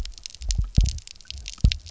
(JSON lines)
{"label": "biophony, double pulse", "recorder": "SoundTrap 300"}